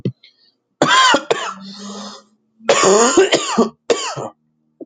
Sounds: Cough